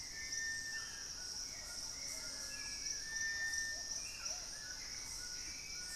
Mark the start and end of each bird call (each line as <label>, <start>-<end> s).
Cinereous Tinamou (Crypturellus cinereus), 0.0-6.0 s
Hauxwell's Thrush (Turdus hauxwelli), 0.0-6.0 s
White-throated Toucan (Ramphastos tucanus), 0.0-6.0 s
Plumbeous Pigeon (Patagioenas plumbea), 1.4-5.0 s